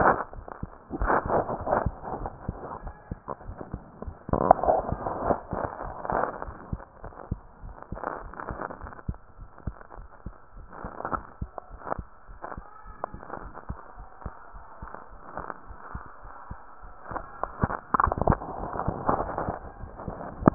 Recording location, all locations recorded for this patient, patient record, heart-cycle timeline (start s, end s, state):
mitral valve (MV)
aortic valve (AV)+pulmonary valve (PV)+tricuspid valve (TV)+mitral valve (MV)
#Age: Child
#Sex: Female
#Height: 122.0 cm
#Weight: 25.9 kg
#Pregnancy status: False
#Murmur: Absent
#Murmur locations: nan
#Most audible location: nan
#Systolic murmur timing: nan
#Systolic murmur shape: nan
#Systolic murmur grading: nan
#Systolic murmur pitch: nan
#Systolic murmur quality: nan
#Diastolic murmur timing: nan
#Diastolic murmur shape: nan
#Diastolic murmur grading: nan
#Diastolic murmur pitch: nan
#Diastolic murmur quality: nan
#Outcome: Normal
#Campaign: 2015 screening campaign
0.00	6.82	unannotated
6.82	7.04	diastole
7.04	7.12	S1
7.12	7.28	systole
7.28	7.42	S2
7.42	7.64	diastole
7.64	7.76	S1
7.76	7.92	systole
7.92	8.00	S2
8.00	8.20	diastole
8.20	8.34	S1
8.34	8.48	systole
8.48	8.58	S2
8.58	8.80	diastole
8.80	8.92	S1
8.92	9.06	systole
9.06	9.20	S2
9.20	9.40	diastole
9.40	9.48	S1
9.48	9.64	systole
9.64	9.78	S2
9.78	9.98	diastole
9.98	10.06	S1
10.06	10.22	systole
10.22	10.34	S2
10.34	10.56	diastole
10.56	10.68	S1
10.68	10.82	systole
10.82	10.92	S2
10.92	11.10	diastole
11.10	11.24	S1
11.24	11.38	systole
11.38	11.52	S2
11.52	11.67	diastole
11.67	11.80	S1
11.80	11.96	systole
11.96	12.06	S2
12.06	12.30	diastole
12.30	12.38	S1
12.38	12.53	systole
12.53	12.64	S2
12.64	12.83	diastole
12.83	12.96	S1
12.96	13.10	systole
13.10	13.22	S2
13.22	13.41	diastole
13.41	13.52	S1
13.52	13.66	systole
13.66	13.78	S2
13.78	13.98	diastole
13.98	14.08	S1
14.08	14.22	systole
14.22	14.36	S2
14.36	14.52	diastole
14.52	14.62	S1
14.62	14.80	systole
14.80	14.90	S2
14.90	15.14	diastole
15.14	20.54	unannotated